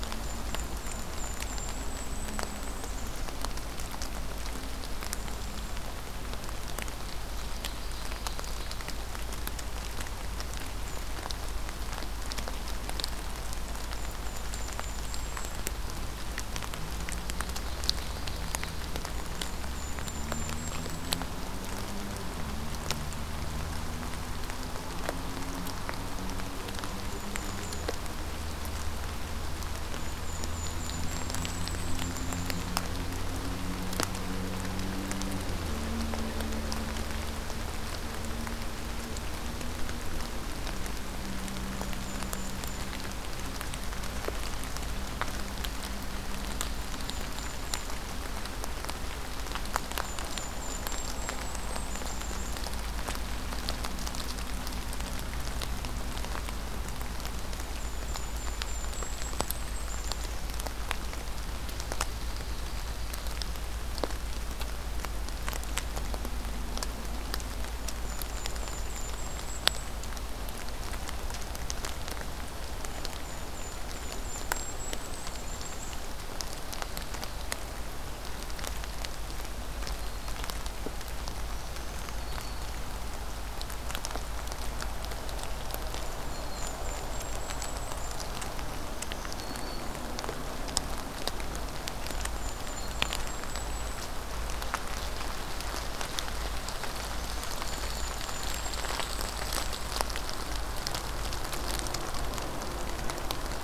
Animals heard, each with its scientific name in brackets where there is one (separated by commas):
Golden-crowned Kinglet (Regulus satrapa), Ovenbird (Seiurus aurocapilla), Black-throated Green Warbler (Setophaga virens)